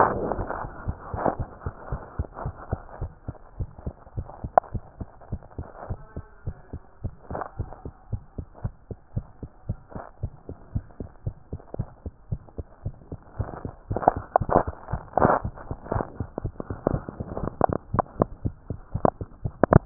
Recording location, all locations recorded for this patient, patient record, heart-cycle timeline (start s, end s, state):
tricuspid valve (TV)
aortic valve (AV)+pulmonary valve (PV)+tricuspid valve (TV)+mitral valve (MV)
#Age: Child
#Sex: Female
#Height: nan
#Weight: nan
#Pregnancy status: False
#Murmur: Absent
#Murmur locations: nan
#Most audible location: nan
#Systolic murmur timing: nan
#Systolic murmur shape: nan
#Systolic murmur grading: nan
#Systolic murmur pitch: nan
#Systolic murmur quality: nan
#Diastolic murmur timing: nan
#Diastolic murmur shape: nan
#Diastolic murmur grading: nan
#Diastolic murmur pitch: nan
#Diastolic murmur quality: nan
#Outcome: Normal
#Campaign: 2015 screening campaign
0.00	1.90	unannotated
1.90	2.02	S1
2.02	2.14	systole
2.14	2.28	S2
2.28	2.44	diastole
2.44	2.56	S1
2.56	2.68	systole
2.68	2.82	S2
2.82	2.98	diastole
2.98	3.12	S1
3.12	3.26	systole
3.26	3.38	S2
3.38	3.56	diastole
3.56	3.70	S1
3.70	3.86	systole
3.86	3.96	S2
3.96	4.16	diastole
4.16	4.28	S1
4.28	4.40	systole
4.40	4.52	S2
4.52	4.70	diastole
4.70	4.84	S1
4.84	5.00	systole
5.00	5.10	S2
5.10	5.28	diastole
5.28	5.40	S1
5.40	5.58	systole
5.58	5.68	S2
5.68	5.88	diastole
5.88	6.00	S1
6.00	6.16	systole
6.16	6.26	S2
6.26	6.46	diastole
6.46	6.56	S1
6.56	6.72	systole
6.72	6.80	S2
6.80	7.00	diastole
7.00	7.14	S1
7.14	7.30	systole
7.30	7.42	S2
7.42	7.56	diastole
7.56	7.70	S1
7.70	7.86	systole
7.86	7.92	S2
7.92	8.10	diastole
8.10	8.24	S1
8.24	8.38	systole
8.38	8.48	S2
8.48	8.64	diastole
8.64	8.74	S1
8.74	8.90	systole
8.90	8.98	S2
8.98	9.14	diastole
9.14	9.24	S1
9.24	9.42	systole
9.42	9.50	S2
9.50	9.66	diastole
9.66	9.80	S1
9.80	9.96	systole
9.96	10.02	S2
10.02	10.20	diastole
10.20	10.34	S1
10.34	10.50	systole
10.50	10.56	S2
10.56	10.72	diastole
10.72	10.86	S1
10.86	11.00	systole
11.00	11.10	S2
11.10	11.24	diastole
11.24	11.34	S1
11.34	11.52	systole
11.52	11.62	S2
11.62	11.78	diastole
11.78	11.90	S1
11.90	12.02	systole
12.02	12.12	S2
12.12	12.28	diastole
12.28	12.40	S1
12.40	12.58	systole
12.58	12.66	S2
12.66	12.84	diastole
12.84	12.96	S1
12.96	13.12	systole
13.12	13.20	S2
13.20	19.86	unannotated